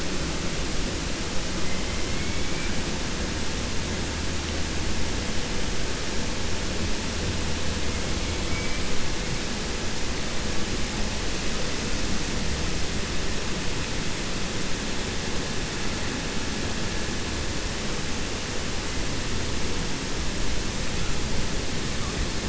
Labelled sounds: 2.1	2.7	killer whale, 1.6 to 2.4 kHz

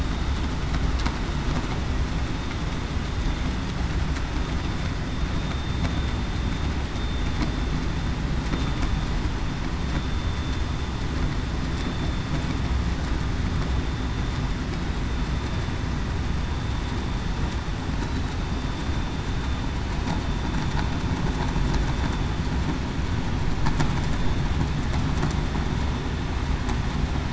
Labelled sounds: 5.3	5.8	vessel noise, 3.6 to 3.7 kHz
10.2	10.5	vessel noise, 3.5 to 3.6 kHz

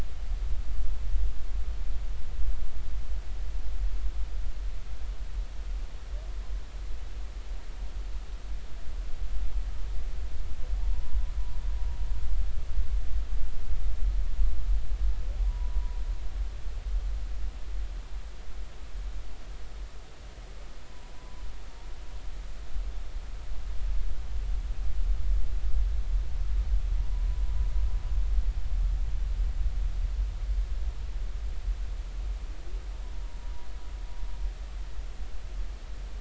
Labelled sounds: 10.8	11.2	humpback whale, 0.80 to 1.1 kHz
15.4	16.0	humpback whale, 0.93 to 1.0 kHz
20.9	21.4	humpback whale, 0.90 to 1.1 kHz
27.0	27.3	humpback whale, 0.93 to 1.0 kHz

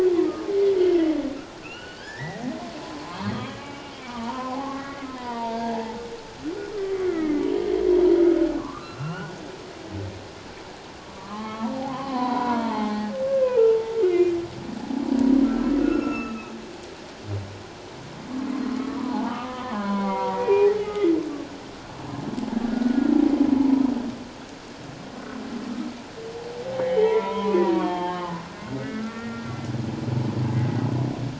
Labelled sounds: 1.6	6.0	humpback whale, 0.78 to 3.5 kHz
6.9	7.4	humpback whale, 1.2 to 2.3 kHz
8.6	9.3	humpback whale, 0.97 to 3.0 kHz
11.2	14.4	humpback whale, 0.78 to 3.4 kHz
15.4	16.5	humpback whale, 1.2 to 2.8 kHz
18.8	21.2	humpback whale, 0.78 to 2.5 kHz
22.7	23.1	humpback whale, 1.4 to 1.5 kHz
26.8	28.4	humpback whale, 0.78 to 3.4 kHz
28.8	29.5	humpback whale, 1.3 to 1.9 kHz

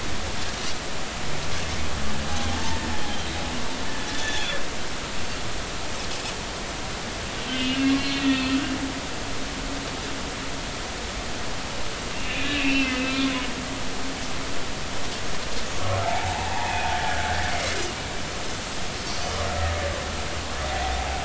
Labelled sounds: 2.5	2.8	humpback whale, 0.80 to 0.96 kHz
4.2	4.6	Pacific white-sided dolphin, 3.2 to 3.7 kHz
7.6	8.6	humpback whale, 1.8 to 4.2 kHz
12.1	13.2	humpback whale, 2.4 to 4.1 kHz
16.0	16.7	humpback whale, 0.80 to 0.99 kHz

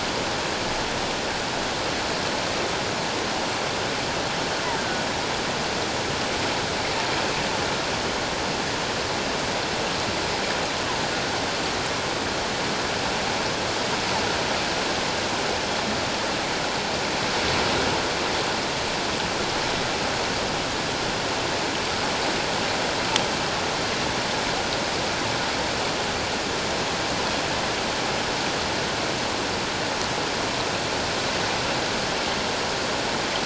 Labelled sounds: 4.8	5.0	killer whale, offshore, call OFF17, 1.4 to 1.7 kHz

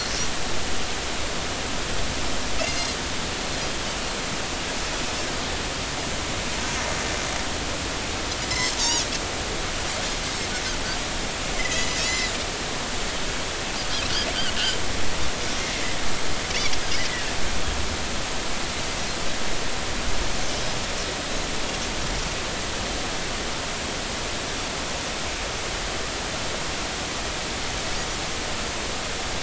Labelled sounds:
2.6	2.9	Pacific white-sided dolphin, 2.6 to 4.3 kHz
8.4	9.1	Pacific white-sided dolphin, 1.9 to 5.9 kHz
11.5	12.3	Pacific white-sided dolphin, 1.9 to 7.3 kHz

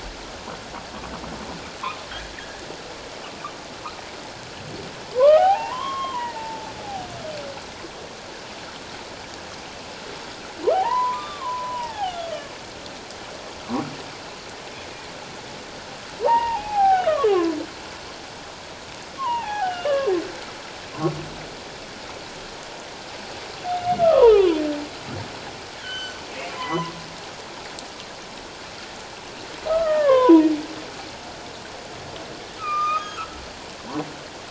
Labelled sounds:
2.3	2.6	humpback whale, 1.6 to 2.0 kHz
5.1	6.7	humpback whale, 0.78 to 3.5 kHz
10.7	12.2	humpback whale, 0.78 to 3.7 kHz
16.2	17.5	humpback whale, 0.78 to 2.9 kHz
19.2	20.1	humpback whale, 0.78 to 3.1 kHz
24.0	24.6	humpback whale, 0.78 to 1.4 kHz
25.8	26.2	humpback whale, 1.4 to 6.2 kHz
26.5	26.9	humpback whale, 0.94 to 2.2 kHz
29.7	30.5	humpback whale, 0.91 to 2.0 kHz
32.6	33.2	humpback whale, 1.1 to 6.6 kHz
33.8	34.0	humpback whale, 0.78 to 1.2 kHz

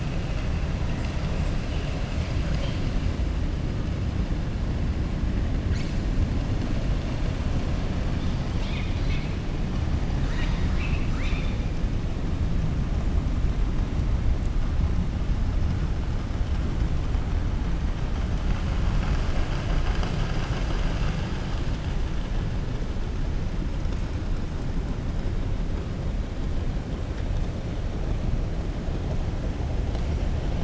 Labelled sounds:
10.1	11.6	killer whale, southern resident, 0.98 to 7.5 kHz

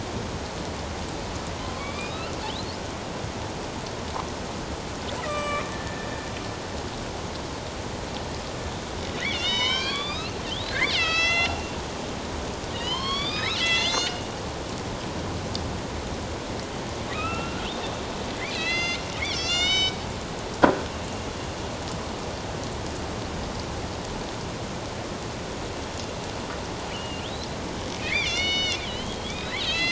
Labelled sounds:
1.8	2.3	killer whale, northern resident, A clan, AB subclan, 2.2 to 5.1 kHz
5.2	6.1	killer whale, northern resident, A clan, AB subclan, 1.1 to 7.8 kHz
9.3	11.7	killer whale, northern resident, A clan, AB subclan, 0.88 to 7.5 kHz
12.7	14.3	killer whale, northern resident, A clan, AB subclan, 0.91 to 7.5 kHz
17.1	17.6	killer whale, northern resident, A clan, AB subclan, 1.2 to 2.8 kHz
18.5	20.0	killer whale, northern resident, A clan, AB subclan, 1.3 to 7.4 kHz
26.8	29.7	killer whale, northern resident, A clan, AB subclan, 1.8 to 6.0 kHz

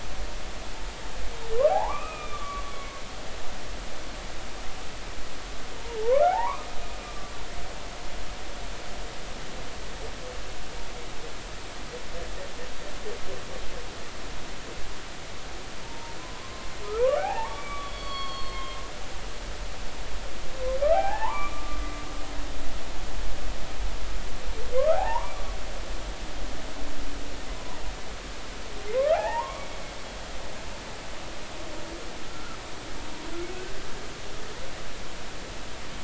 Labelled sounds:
1.7	3.0	humpback whale, 0.80 to 3.6 kHz
6.0	6.7	humpback whale, 0.80 to 1.6 kHz
7.0	7.3	humpback whale, 1.1 to 1.2 kHz
15.8	18.8	humpback whale, 0.80 to 4.5 kHz
20.9	21.8	humpback whale, 0.80 to 2.5 kHz
24.7	25.3	humpback whale, 0.80 to 1.5 kHz
28.9	29.7	humpback whale, 0.80 to 2.3 kHz
32.3	32.6	humpback whale, 1.2 to 1.5 kHz

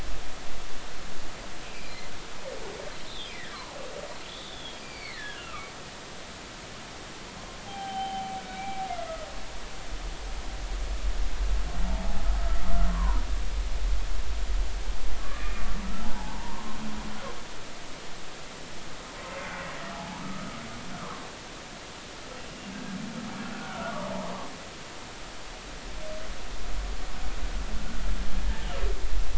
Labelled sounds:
1.6	2.0	humpback whale, 2.2 to 2.7 kHz
3.0	3.8	humpback whale, 0.80 to 4.1 kHz
4.3	5.7	humpback whale, 1.1 to 4.9 kHz
7.7	8.8	humpback whale, 0.80 to 3.2 kHz
11.9	13.2	humpback whale, 0.80 to 1.4 kHz
15.2	16.8	humpback whale, 0.80 to 2.5 kHz
19.9	20.5	humpback whale, 0.80 to 1.4 kHz
22.7	23.0	humpback whale, 1.5 to 1.7 kHz
23.6	24.4	humpback whale, 0.83 to 1.5 kHz

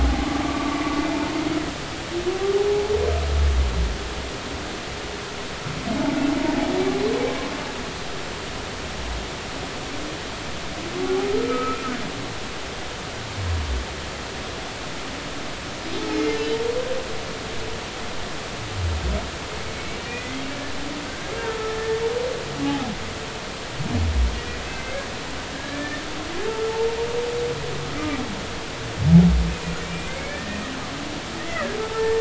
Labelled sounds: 0.0	0.8	humpback whale, 0.80 to 1.2 kHz
11.4	11.9	humpback whale, 1.2 to 1.4 kHz
16.1	16.6	humpback whale, 2.0 to 3.1 kHz
19.8	20.4	humpback whale, 1.8 to 2.3 kHz
21.1	22.0	humpback whale, 1.3 to 1.8 kHz
22.6	22.9	humpback whale, 0.80 to 0.90 kHz
25.5	26.0	humpback whale, 1.6 to 2.3 kHz
29.5	30.7	humpback whale, 1.6 to 2.6 kHz
31.5	32.1	humpback whale, 0.83 to 2.1 kHz

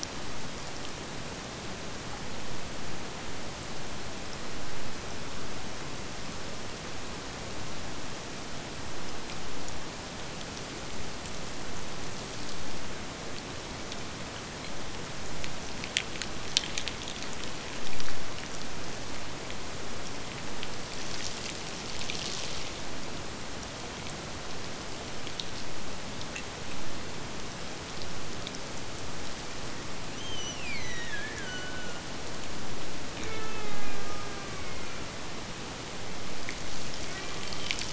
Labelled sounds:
30.1	32.1	killer whale, Bigg's (transient), Gulf of Alaska transient, 1.3 to 8.0 kHz
33.1	35.0	killer whale, Bigg's (transient), Gulf of Alaska transient, 0 to 3.0 kHz
36.9	37.9	killer whale, Bigg's (transient), Gulf of Alaska transient, 0.37 to 2.5 kHz

